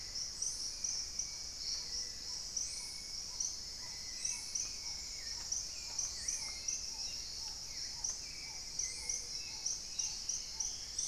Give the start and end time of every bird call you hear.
0.0s-11.1s: Hauxwell's Thrush (Turdus hauxwelli)
0.0s-11.1s: Paradise Tanager (Tangara chilensis)
1.2s-11.1s: Black-tailed Trogon (Trogon melanurus)
1.7s-2.9s: Gray-fronted Dove (Leptotila rufaxilla)
5.5s-6.6s: unidentified bird
8.5s-11.1s: Dusky-throated Antshrike (Thamnomanes ardesiacus)
8.9s-9.8s: Gray-fronted Dove (Leptotila rufaxilla)
9.2s-11.1s: Spot-winged Antshrike (Pygiptila stellaris)

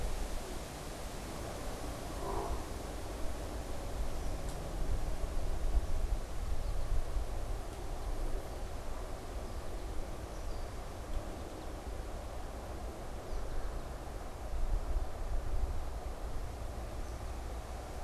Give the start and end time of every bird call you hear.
4.1s-4.5s: Red-winged Blackbird (Agelaius phoeniceus)
5.6s-17.7s: American Goldfinch (Spinus tristis)
10.2s-10.8s: Red-winged Blackbird (Agelaius phoeniceus)
16.8s-17.5s: Red-winged Blackbird (Agelaius phoeniceus)

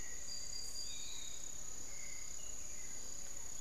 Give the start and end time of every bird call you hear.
0.0s-3.6s: Hauxwell's Thrush (Turdus hauxwelli)
0.0s-3.6s: Piratic Flycatcher (Legatus leucophaius)
0.0s-3.6s: Spix's Guan (Penelope jacquacu)

